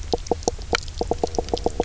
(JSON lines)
{"label": "biophony, knock croak", "recorder": "SoundTrap 300"}